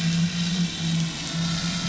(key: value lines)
label: anthrophony, boat engine
recorder: SoundTrap 500